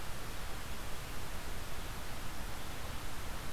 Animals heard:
forest ambience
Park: Marsh-Billings-Rockefeller National Historical Park